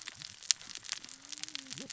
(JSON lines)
{"label": "biophony, cascading saw", "recorder": "SoundTrap 600 or HydroMoth"}